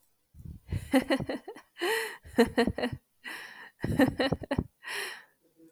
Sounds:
Laughter